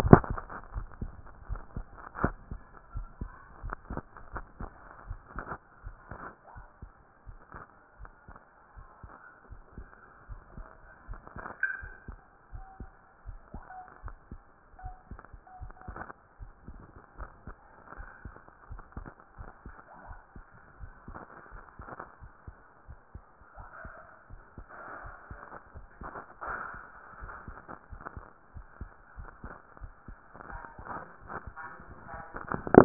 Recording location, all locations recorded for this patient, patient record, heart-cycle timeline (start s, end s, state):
aortic valve (AV)
aortic valve (AV)+pulmonary valve (PV)+tricuspid valve (TV)+mitral valve (MV)
#Age: Child
#Sex: Female
#Height: 131.0 cm
#Weight: 34.8 kg
#Pregnancy status: False
#Murmur: Absent
#Murmur locations: nan
#Most audible location: nan
#Systolic murmur timing: nan
#Systolic murmur shape: nan
#Systolic murmur grading: nan
#Systolic murmur pitch: nan
#Systolic murmur quality: nan
#Diastolic murmur timing: nan
#Diastolic murmur shape: nan
#Diastolic murmur grading: nan
#Diastolic murmur pitch: nan
#Diastolic murmur quality: nan
#Outcome: Normal
#Campaign: 2014 screening campaign
0.00	2.94	unannotated
2.94	3.08	S1
3.08	3.20	systole
3.20	3.30	S2
3.30	3.62	diastole
3.62	3.76	S1
3.76	3.90	systole
3.90	4.02	S2
4.02	4.32	diastole
4.32	4.46	S1
4.46	4.60	systole
4.60	4.70	S2
4.70	5.08	diastole
5.08	5.20	S1
5.20	5.36	systole
5.36	5.46	S2
5.46	5.84	diastole
5.84	5.96	S1
5.96	6.12	systole
6.12	6.22	S2
6.22	6.56	diastole
6.56	6.66	S1
6.66	6.82	systole
6.82	6.92	S2
6.92	7.26	diastole
7.26	7.38	S1
7.38	7.54	systole
7.54	7.64	S2
7.64	8.00	diastole
8.00	8.10	S1
8.10	8.28	systole
8.28	8.38	S2
8.38	8.76	diastole
8.76	8.88	S1
8.88	9.04	systole
9.04	9.12	S2
9.12	9.50	diastole
9.50	9.62	S1
9.62	9.76	systole
9.76	9.86	S2
9.86	10.28	diastole
10.28	10.40	S1
10.40	10.56	systole
10.56	10.66	S2
10.66	11.08	diastole
11.08	11.20	S1
11.20	11.36	systole
11.36	11.46	S2
11.46	11.82	diastole
11.82	11.94	S1
11.94	12.08	systole
12.08	12.18	S2
12.18	12.52	diastole
12.52	12.66	S1
12.66	12.80	systole
12.80	12.90	S2
12.90	13.26	diastole
13.26	13.38	S1
13.38	13.54	systole
13.54	13.64	S2
13.64	14.04	diastole
14.04	14.16	S1
14.16	14.32	systole
14.32	14.42	S2
14.42	14.84	diastole
14.84	14.96	S1
14.96	15.10	systole
15.10	15.20	S2
15.20	15.62	diastole
15.62	15.74	S1
15.74	15.90	systole
15.90	16.00	S2
16.00	16.40	diastole
16.40	16.52	S1
16.52	16.68	systole
16.68	16.78	S2
16.78	17.18	diastole
17.18	17.30	S1
17.30	17.46	systole
17.46	17.56	S2
17.56	17.98	diastole
17.98	18.08	S1
18.08	18.24	systole
18.24	18.34	S2
18.34	18.70	diastole
18.70	18.82	S1
18.82	18.98	systole
18.98	19.08	S2
19.08	19.38	diastole
19.38	19.50	S1
19.50	19.66	systole
19.66	19.76	S2
19.76	20.08	diastole
20.08	20.18	S1
20.18	20.36	systole
20.36	20.44	S2
20.44	20.80	diastole
20.80	20.92	S1
20.92	21.08	systole
21.08	21.20	S2
21.20	21.52	diastole
21.52	21.64	S1
21.64	21.80	systole
21.80	21.90	S2
21.90	22.22	diastole
22.22	22.32	S1
22.32	22.48	systole
22.48	22.56	S2
22.56	22.88	diastole
22.88	22.98	S1
22.98	23.14	systole
23.14	23.24	S2
23.24	23.58	diastole
23.58	23.68	S1
23.68	23.84	systole
23.84	23.94	S2
23.94	24.30	diastole
24.30	24.42	S1
24.42	24.58	systole
24.58	24.66	S2
24.66	25.04	diastole
25.04	25.14	S1
25.14	25.30	systole
25.30	25.40	S2
25.40	25.76	diastole
25.76	25.86	S1
25.86	26.02	systole
26.02	26.12	S2
26.12	26.48	diastole
26.48	26.58	S1
26.58	26.74	systole
26.74	26.82	S2
26.82	27.20	diastole
27.20	27.32	S1
27.32	27.48	systole
27.48	27.58	S2
27.58	27.92	diastole
27.92	28.02	S1
28.02	28.16	systole
28.16	28.26	S2
28.26	28.54	diastole
28.54	28.66	S1
28.66	28.80	systole
28.80	28.90	S2
28.90	29.18	diastole
29.18	29.30	S1
29.30	29.44	systole
29.44	29.54	S2
29.54	29.82	diastole
29.82	29.92	S1
29.92	30.08	systole
30.08	30.18	S2
30.18	30.50	diastole
30.50	30.62	S1
30.62	30.82	systole
30.82	30.88	S2
30.88	31.26	diastole
31.26	32.85	unannotated